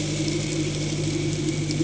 {"label": "anthrophony, boat engine", "recorder": "HydroMoth"}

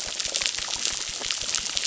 {"label": "biophony, crackle", "recorder": "SoundTrap 600"}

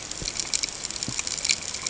{"label": "ambient", "recorder": "HydroMoth"}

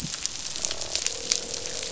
{"label": "biophony, croak", "recorder": "SoundTrap 500"}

